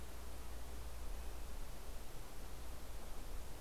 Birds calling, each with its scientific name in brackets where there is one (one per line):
Red-breasted Nuthatch (Sitta canadensis)